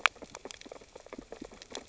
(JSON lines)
{"label": "biophony, sea urchins (Echinidae)", "recorder": "SoundTrap 600 or HydroMoth"}